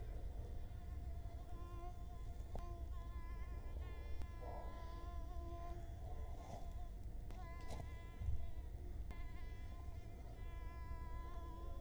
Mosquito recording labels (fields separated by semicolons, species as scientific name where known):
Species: Culex quinquefasciatus; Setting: cup